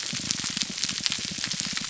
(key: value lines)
label: biophony
recorder: SoundTrap 300